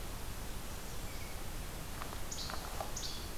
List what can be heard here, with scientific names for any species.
Empidonax minimus